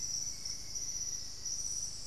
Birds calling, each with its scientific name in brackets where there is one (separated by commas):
Hauxwell's Thrush (Turdus hauxwelli), Black-faced Antthrush (Formicarius analis)